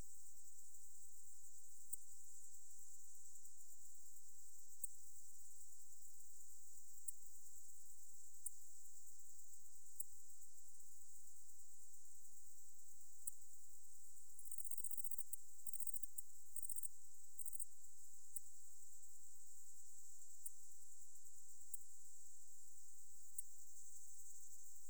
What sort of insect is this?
orthopteran